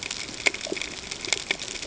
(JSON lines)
{"label": "ambient", "recorder": "HydroMoth"}